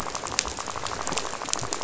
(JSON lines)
{"label": "biophony, rattle", "recorder": "SoundTrap 500"}